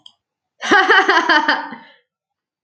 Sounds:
Laughter